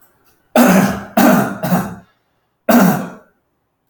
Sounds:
Throat clearing